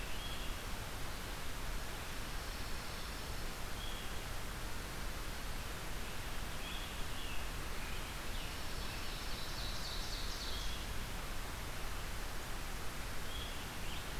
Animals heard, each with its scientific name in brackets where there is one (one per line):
Ovenbird (Seiurus aurocapilla)
Scarlet Tanager (Piranga olivacea)
Pine Warbler (Setophaga pinus)
Red-eyed Vireo (Vireo olivaceus)